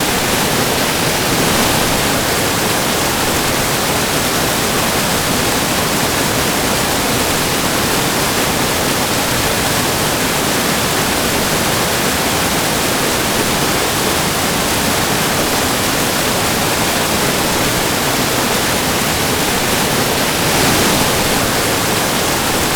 Is it raining hard?
yes